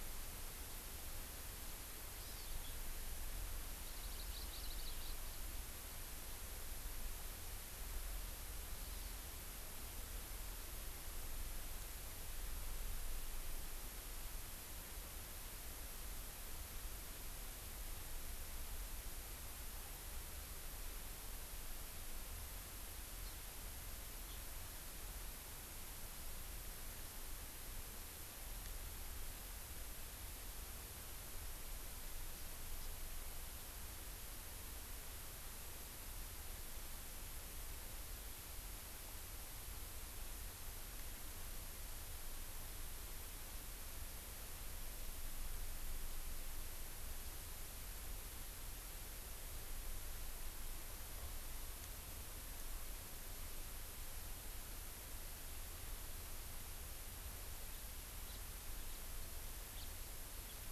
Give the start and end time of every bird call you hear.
2.2s-2.5s: Hawaii Amakihi (Chlorodrepanis virens)
3.8s-5.2s: Hawaii Amakihi (Chlorodrepanis virens)
8.8s-9.1s: Hawaii Amakihi (Chlorodrepanis virens)
23.2s-23.3s: House Finch (Haemorhous mexicanus)
58.3s-58.4s: House Finch (Haemorhous mexicanus)
58.8s-59.0s: House Finch (Haemorhous mexicanus)
59.7s-59.9s: House Finch (Haemorhous mexicanus)

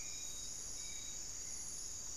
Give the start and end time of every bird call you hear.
0.0s-2.2s: Hauxwell's Thrush (Turdus hauxwelli)

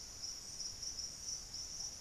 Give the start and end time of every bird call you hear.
0.0s-2.0s: Ruddy Pigeon (Patagioenas subvinacea)

